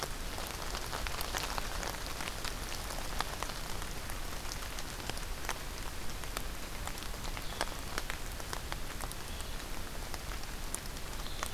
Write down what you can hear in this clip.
Blue-headed Vireo